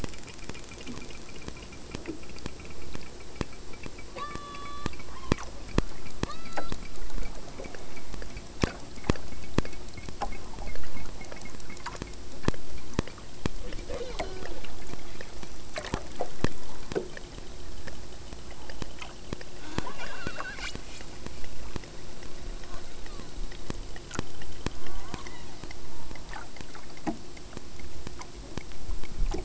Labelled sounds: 4.1	5.6	killer whale, southern Alaska resident, 0.26 to 8.0 kHz
6.2	6.9	killer whale, southern Alaska resident, 0.57 to 5.1 kHz
13.8	14.6	killer whale, southern Alaska resident, 0.10 to 6.5 kHz
19.5	21.3	killer whale, southern Alaska resident, 0.44 to 8.0 kHz
22.1	23.5	killer whale, southern Alaska resident, 0.59 to 2.4 kHz
24.5	25.8	killer whale, southern Alaska resident, 0.39 to 4.5 kHz

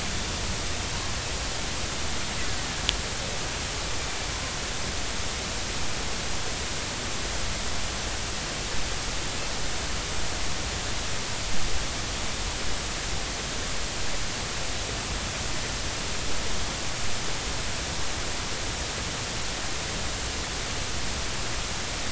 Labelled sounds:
2.6	2.8	killer whale, northern resident, 1.6 to 2.0 kHz

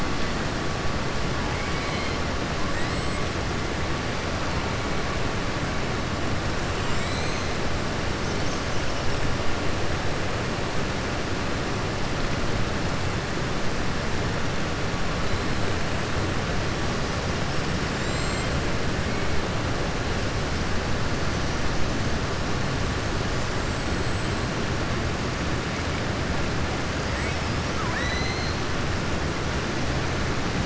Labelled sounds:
1.5	2.2	killer whale, southern resident, 2.0 to 5.1 kHz
2.7	3.3	killer whale, southern resident, 7.4 to 8.0 kHz
17.9	18.5	killer whale, southern resident, 6.9 to 7.7 kHz
23.6	24.4	killer whale, southern resident, 7.4 to 7.9 kHz
27.7	28.6	killer whale, southern resident, 0.99 to 7.9 kHz

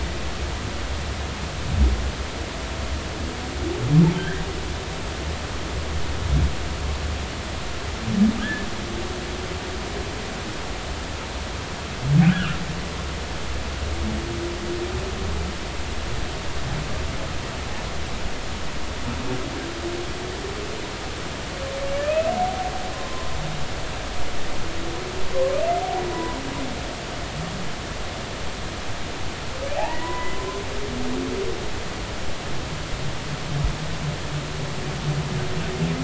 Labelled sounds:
4.2	4.4	humpback whale, 1.5 to 1.9 kHz
8.4	8.7	humpback whale, 1.5 to 1.8 kHz
12.3	12.6	humpback whale, 1.2 to 1.7 kHz
22.0	23.3	humpback whale, 0.96 to 2.7 kHz
27.1	27.4	humpback whale, 0.93 to 1.1 kHz
29.7	30.4	humpback whale, 0.80 to 2.0 kHz

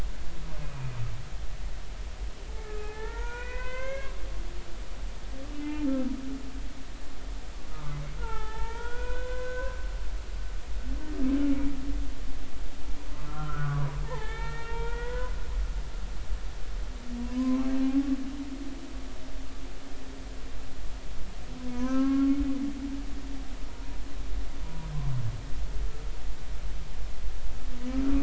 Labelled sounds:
0.6	0.9	humpback whale, 2.3 to 2.5 kHz
2.6	4.1	humpback whale, 0.80 to 3.3 kHz
5.5	5.9	humpback whale, 2.3 to 2.8 kHz
7.7	9.9	humpback whale, 0.80 to 3.6 kHz
13.1	15.3	humpback whale, 0.80 to 3.7 kHz
17.4	18.1	humpback whale, 0.80 to 1.2 kHz
21.6	22.4	humpback whale, 0.93 to 1.7 kHz
23.7	24.0	humpback whale, 0.93 to 0.99 kHz
24.6	24.9	humpback whale, 0.93 to 1.0 kHz

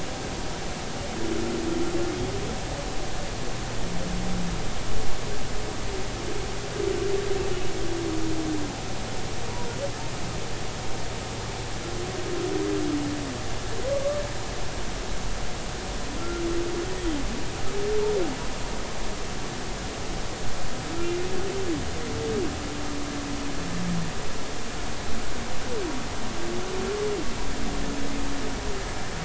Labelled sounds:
16.2	16.4	humpback whale, 1.3 to 1.4 kHz

